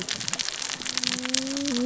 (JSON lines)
{"label": "biophony, cascading saw", "recorder": "SoundTrap 600 or HydroMoth"}